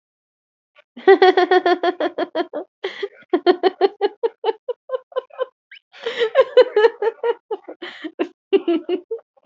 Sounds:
Laughter